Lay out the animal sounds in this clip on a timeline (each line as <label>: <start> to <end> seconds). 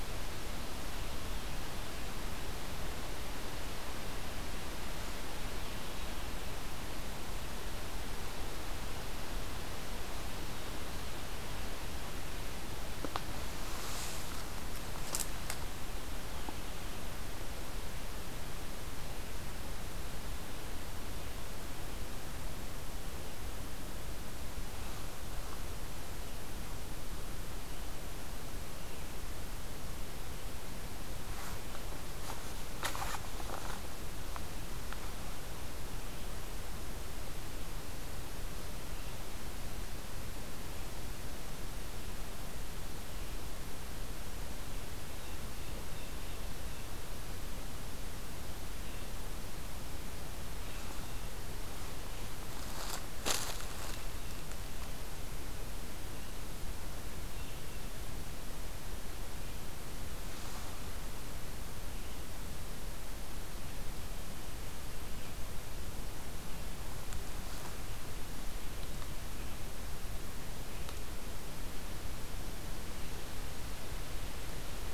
Blue Jay (Cyanocitta cristata): 45.0 to 47.1 seconds
Blue Jay (Cyanocitta cristata): 57.0 to 58.1 seconds